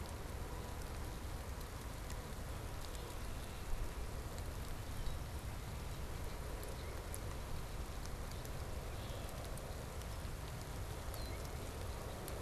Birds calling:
Red-winged Blackbird (Agelaius phoeniceus)

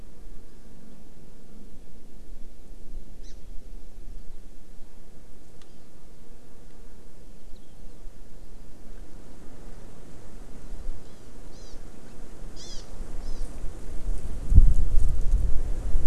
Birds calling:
Hawaii Amakihi (Chlorodrepanis virens)

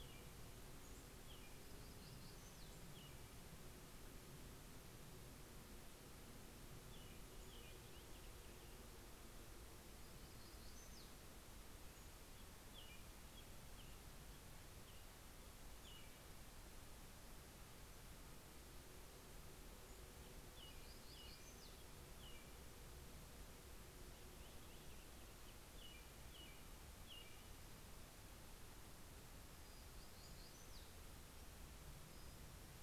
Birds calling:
Black-throated Gray Warbler (Setophaga nigrescens)
Purple Finch (Haemorhous purpureus)
American Robin (Turdus migratorius)

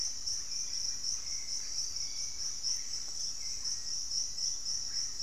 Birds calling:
Hauxwell's Thrush (Turdus hauxwelli)
Russet-backed Oropendola (Psarocolius angustifrons)
Black-faced Antthrush (Formicarius analis)

